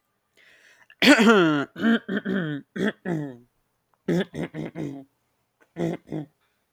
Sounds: Throat clearing